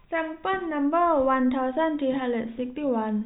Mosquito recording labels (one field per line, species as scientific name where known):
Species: no mosquito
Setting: cup